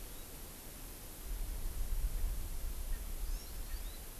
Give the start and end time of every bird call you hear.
[3.20, 4.10] Hawaii Amakihi (Chlorodrepanis virens)

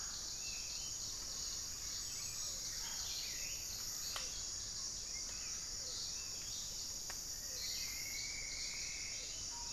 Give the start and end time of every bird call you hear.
[0.00, 9.73] Hauxwell's Thrush (Turdus hauxwelli)
[7.06, 9.73] Plumbeous Antbird (Myrmelastes hyperythrus)

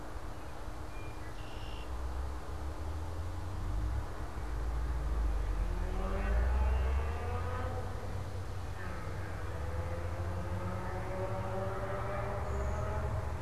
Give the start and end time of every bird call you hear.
[0.75, 1.95] Red-winged Blackbird (Agelaius phoeniceus)

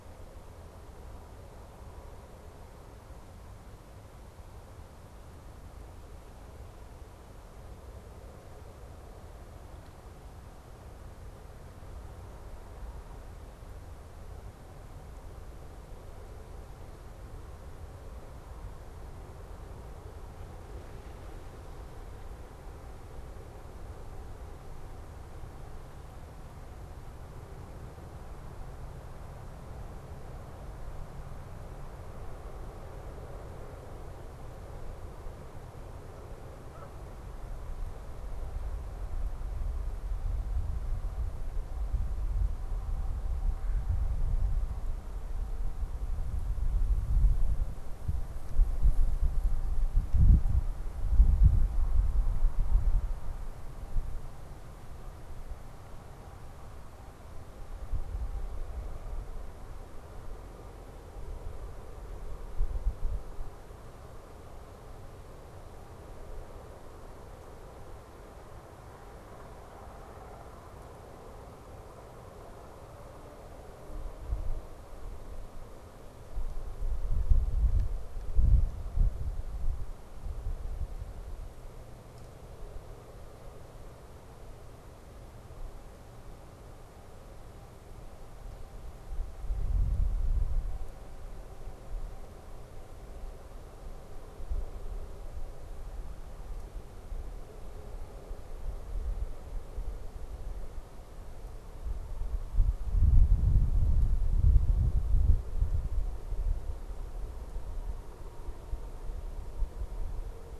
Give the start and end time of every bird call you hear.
[36.12, 37.33] Canada Goose (Branta canadensis)

